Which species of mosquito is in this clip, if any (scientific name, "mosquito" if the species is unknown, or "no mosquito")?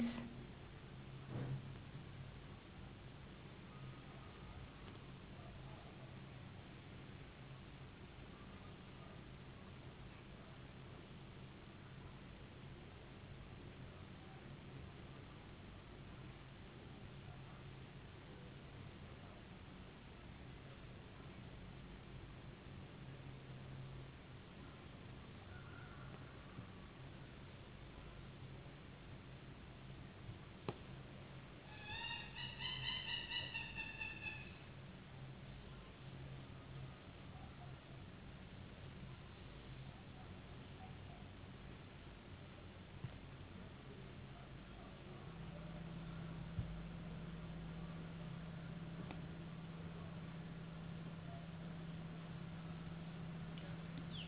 no mosquito